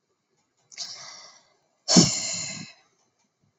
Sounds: Sigh